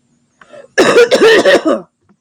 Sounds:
Cough